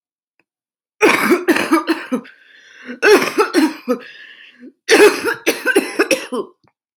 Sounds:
Cough